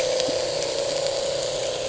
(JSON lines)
{"label": "anthrophony, boat engine", "recorder": "HydroMoth"}